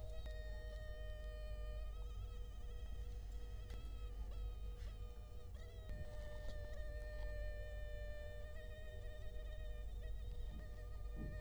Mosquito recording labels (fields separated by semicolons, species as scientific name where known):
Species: Culex quinquefasciatus; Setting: cup